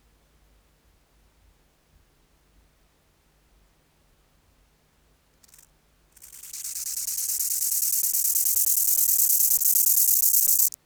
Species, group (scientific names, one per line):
Chorthippus biguttulus
Orthoptera